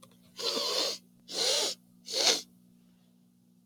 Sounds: Sniff